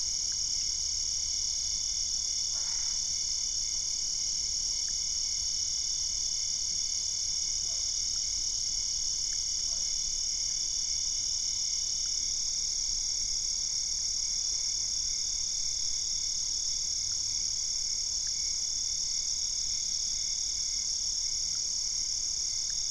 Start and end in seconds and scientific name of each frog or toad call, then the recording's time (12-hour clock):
2.3	3.2	Boana albopunctata
7.1	11.0	Physalaemus cuvieri
9:15pm